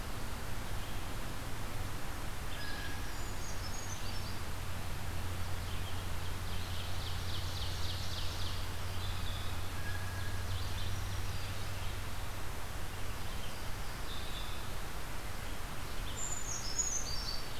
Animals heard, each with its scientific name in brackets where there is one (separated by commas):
Brown Creeper (Certhia americana), Red-eyed Vireo (Vireo olivaceus), Black-throated Green Warbler (Setophaga virens), Blue Jay (Cyanocitta cristata), Ovenbird (Seiurus aurocapilla)